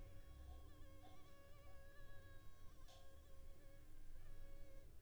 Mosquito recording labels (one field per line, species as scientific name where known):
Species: Culex pipiens complex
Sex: female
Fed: unfed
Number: one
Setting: cup